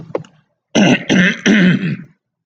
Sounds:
Throat clearing